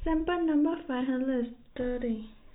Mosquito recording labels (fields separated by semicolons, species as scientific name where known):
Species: no mosquito; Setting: cup